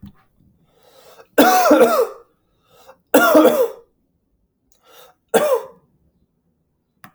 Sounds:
Cough